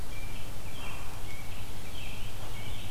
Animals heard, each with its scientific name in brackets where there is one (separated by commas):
American Robin (Turdus migratorius)